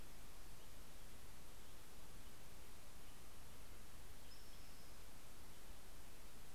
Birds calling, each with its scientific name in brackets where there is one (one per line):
Spotted Towhee (Pipilo maculatus)